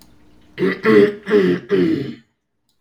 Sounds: Throat clearing